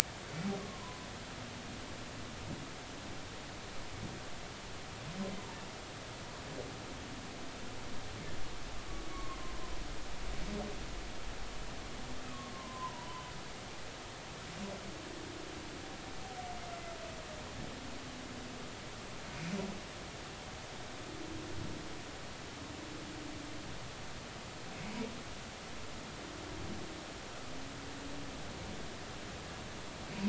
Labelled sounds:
0.6	1.1	humpback whale, 0.93 to 1.2 kHz
9.1	9.4	humpback whale, 1.0 to 1.2 kHz
12.5	13.3	humpback whale, 0.90 to 3.1 kHz

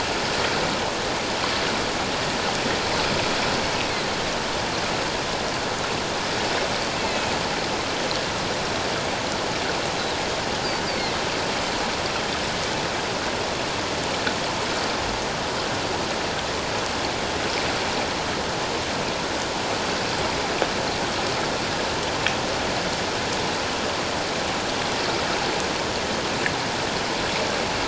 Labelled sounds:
7.0	7.3	Pacific white-sided dolphin, 2.5 to 2.7 kHz
10.9	11.2	Pacific white-sided dolphin, 2.0 to 4.9 kHz

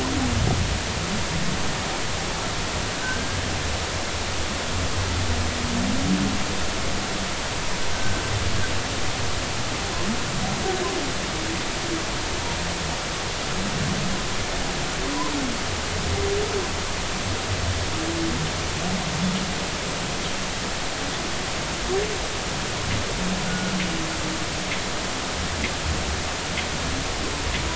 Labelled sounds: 3.0	3.4	humpback whale, 1.5 to 1.6 kHz
7.9	8.2	humpback whale, 1.5 to 1.6 kHz
23.4	23.7	humpback whale, 1.4 to 1.5 kHz

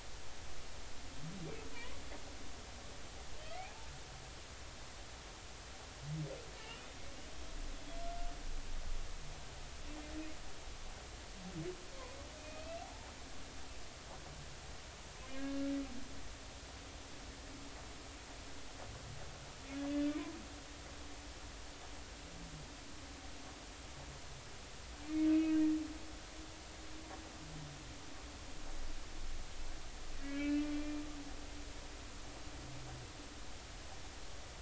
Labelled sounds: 1.7	2.0	humpback whale, 0.90 to 1.2 kHz
3.4	3.8	humpback whale, 1.8 to 2.6 kHz
6.6	6.8	humpback whale, 2.7 to 3.0 kHz
12.4	13.1	humpback whale, 0.80 to 2.7 kHz
15.4	15.6	humpback whale, 1.6 to 1.7 kHz
19.9	20.1	humpback whale, 3.4 to 3.6 kHz
25.3	25.6	humpback whale, 2.4 to 2.7 kHz
30.2	31.0	humpback whale, 1.4 to 2.7 kHz

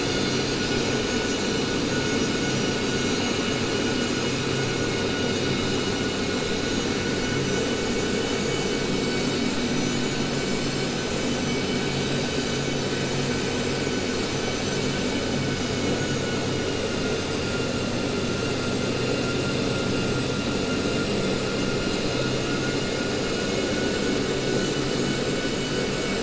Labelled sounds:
15.5	16.4	vessel noise, 1.3 to 3.0 kHz
22.4	24.1	vessel noise, 1.3 to 3.0 kHz

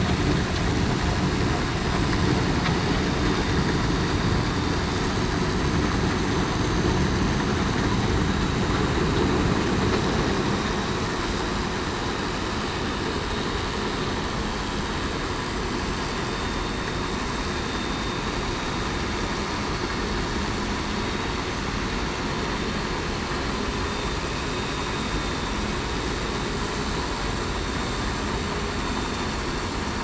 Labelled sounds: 24.3	24.9	vessel noise, 3.66 to 3.70 kHz

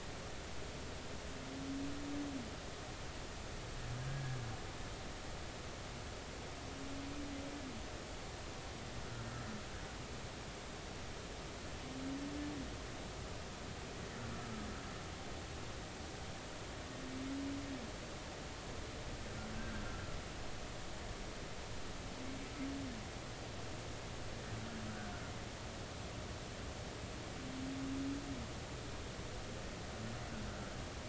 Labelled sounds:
4.1	4.4	humpback whale, 1.6 to 1.7 kHz
19.5	19.8	humpback whale, 1.4 to 1.6 kHz

